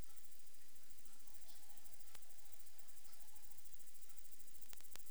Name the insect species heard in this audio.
Odontura glabricauda